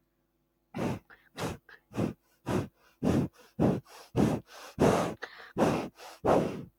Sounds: Sneeze